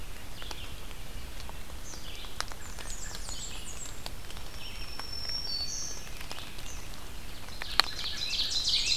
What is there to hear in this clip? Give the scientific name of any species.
Vireo olivaceus, Setophaga fusca, Setophaga petechia, Setophaga virens, Seiurus aurocapilla, Turdus migratorius